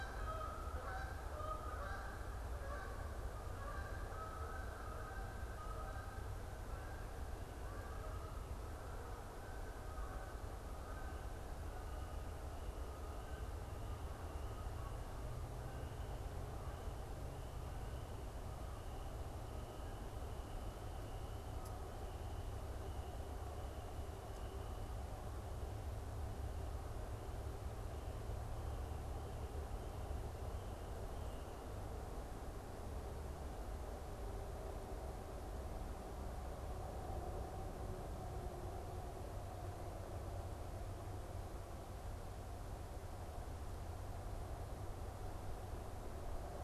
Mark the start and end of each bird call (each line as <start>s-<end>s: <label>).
0.0s-12.2s: Canada Goose (Branta canadensis)